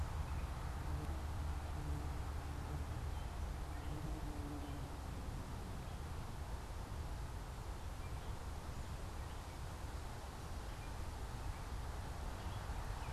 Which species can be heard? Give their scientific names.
unidentified bird